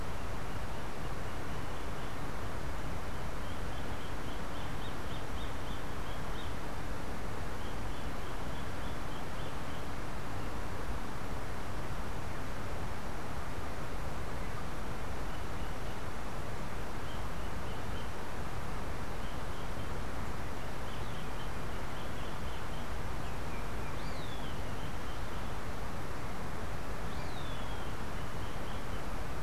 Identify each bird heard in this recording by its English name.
Roadside Hawk